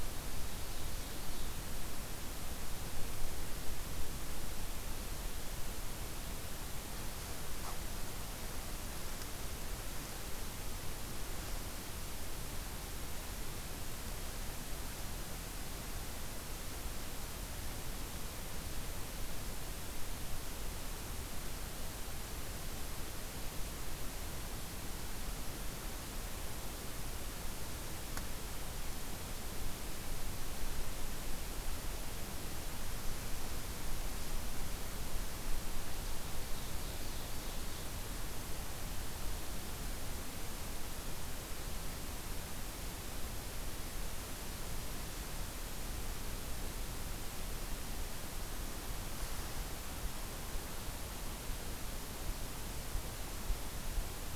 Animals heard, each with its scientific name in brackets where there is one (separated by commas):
Ovenbird (Seiurus aurocapilla)